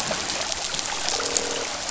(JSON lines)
{"label": "biophony, croak", "recorder": "SoundTrap 500"}